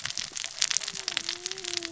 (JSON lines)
{"label": "biophony, cascading saw", "recorder": "SoundTrap 600 or HydroMoth"}